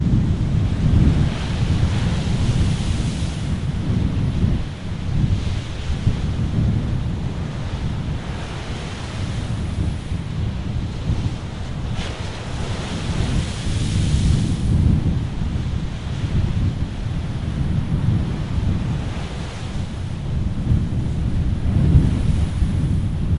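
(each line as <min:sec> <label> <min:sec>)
0:00.0 Waves of the restless sea constantly smash against each other with occasional sounds of a blizzard. 0:23.4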